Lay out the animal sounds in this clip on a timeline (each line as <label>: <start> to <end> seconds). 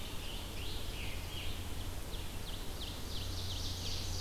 Scarlet Tanager (Piranga olivacea): 0.1 to 1.6 seconds
Ovenbird (Seiurus aurocapilla): 2.0 to 4.2 seconds